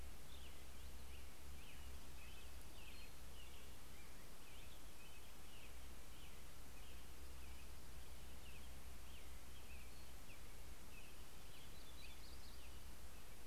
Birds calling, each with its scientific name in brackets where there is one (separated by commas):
Yellow-rumped Warbler (Setophaga coronata), Townsend's Solitaire (Myadestes townsendi), Dark-eyed Junco (Junco hyemalis), American Robin (Turdus migratorius)